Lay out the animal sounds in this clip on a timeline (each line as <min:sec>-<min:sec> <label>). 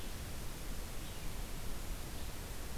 0:00.0-0:02.8 Red-eyed Vireo (Vireo olivaceus)